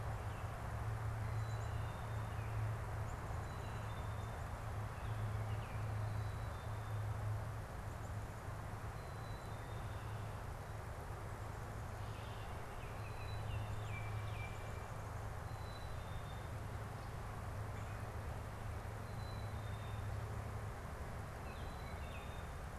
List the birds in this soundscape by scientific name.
Poecile atricapillus, Icterus galbula, Melanerpes carolinus